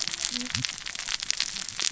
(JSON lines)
{"label": "biophony, cascading saw", "recorder": "SoundTrap 600 or HydroMoth"}